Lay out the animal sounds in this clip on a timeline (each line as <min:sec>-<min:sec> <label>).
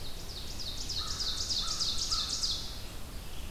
0:00.0-0:02.9 Ovenbird (Seiurus aurocapilla)
0:00.4-0:03.5 Red-eyed Vireo (Vireo olivaceus)
0:00.9-0:02.4 American Crow (Corvus brachyrhynchos)